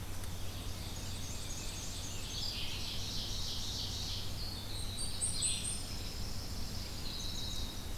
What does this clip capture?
Red-eyed Vireo, Ovenbird, Rose-breasted Grosbeak, Black-and-white Warbler, Winter Wren, Blackpoll Warbler, Yellow Warbler